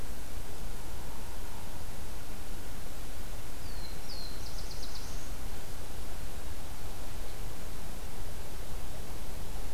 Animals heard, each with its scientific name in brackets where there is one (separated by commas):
Black-throated Blue Warbler (Setophaga caerulescens)